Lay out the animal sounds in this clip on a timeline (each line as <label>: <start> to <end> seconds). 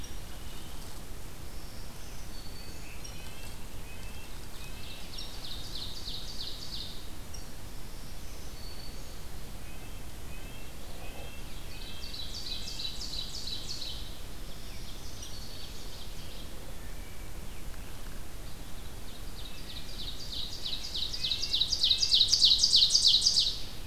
Black-throated Green Warbler (Setophaga virens): 1.5 to 3.0 seconds
Red-breasted Nuthatch (Sitta canadensis): 2.9 to 5.2 seconds
Ovenbird (Seiurus aurocapilla): 4.7 to 7.2 seconds
Black-throated Green Warbler (Setophaga virens): 7.9 to 9.5 seconds
Red-breasted Nuthatch (Sitta canadensis): 9.6 to 13.0 seconds
Ovenbird (Seiurus aurocapilla): 11.2 to 16.7 seconds
Black-throated Green Warbler (Setophaga virens): 14.1 to 16.1 seconds
Wood Thrush (Hylocichla mustelina): 16.7 to 17.4 seconds
Ovenbird (Seiurus aurocapilla): 18.5 to 23.9 seconds
Red-breasted Nuthatch (Sitta canadensis): 19.5 to 22.3 seconds